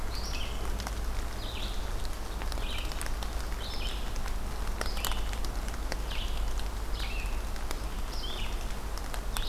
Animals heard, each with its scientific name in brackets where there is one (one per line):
Red-eyed Vireo (Vireo olivaceus)